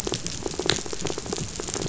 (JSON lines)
{"label": "biophony, rattle", "recorder": "SoundTrap 500"}